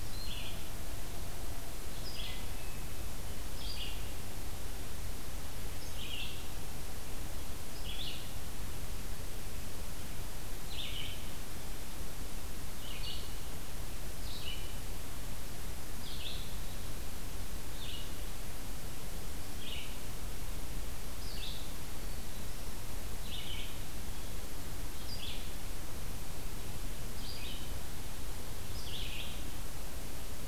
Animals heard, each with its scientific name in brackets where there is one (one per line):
Hermit Thrush (Catharus guttatus)
Red-eyed Vireo (Vireo olivaceus)